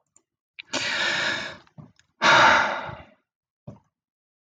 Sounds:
Sigh